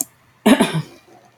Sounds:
Throat clearing